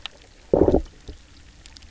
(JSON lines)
{"label": "biophony, low growl", "recorder": "SoundTrap 300"}